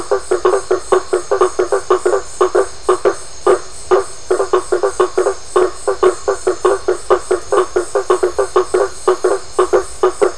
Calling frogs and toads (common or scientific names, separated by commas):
blacksmith tree frog